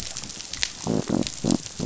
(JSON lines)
{"label": "biophony", "recorder": "SoundTrap 500"}